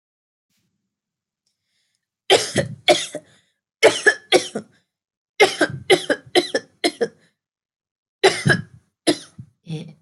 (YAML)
expert_labels:
- quality: good
  cough_type: dry
  dyspnea: false
  wheezing: false
  stridor: false
  choking: false
  congestion: false
  nothing: true
  diagnosis: upper respiratory tract infection
  severity: severe
age: 27
gender: female
respiratory_condition: false
fever_muscle_pain: false
status: healthy